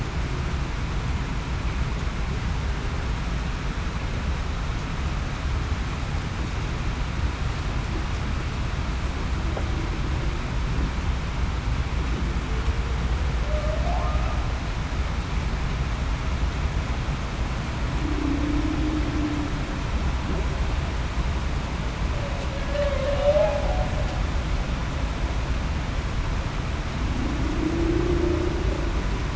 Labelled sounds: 13.4	13.9	humpback whale, 0.56 to 0.75 kHz
18.0	18.4	humpback whale, 0.26 to 0.38 kHz
22.7	23.2	humpback whale, 0.49 to 0.68 kHz

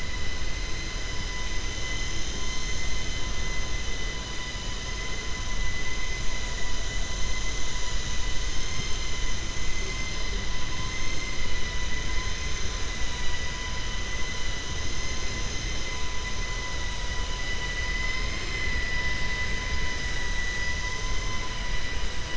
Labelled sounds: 17.9	19.2	vessel noise, 1.0 to 4.1 kHz

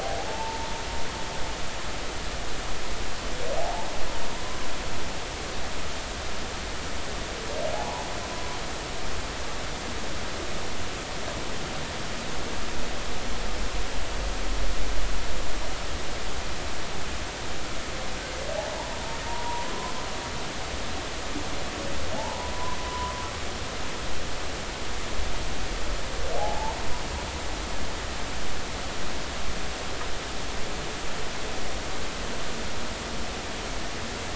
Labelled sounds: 0.0	0.7	humpback whale, 0.80 to 0.96 kHz
3.6	3.9	humpback whale, 0.80 to 0.99 kHz
7.7	8.1	humpback whale, 0.80 to 1.0 kHz
19.2	19.9	humpback whale, 0.90 to 1.1 kHz
22.1	23.1	humpback whale, 0.80 to 1.1 kHz
26.4	26.8	humpback whale, 0.80 to 1.0 kHz

